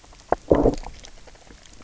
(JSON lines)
{"label": "biophony, low growl", "recorder": "SoundTrap 300"}